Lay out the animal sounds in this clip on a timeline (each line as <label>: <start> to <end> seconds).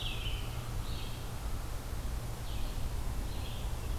Red-eyed Vireo (Vireo olivaceus): 0.0 to 4.0 seconds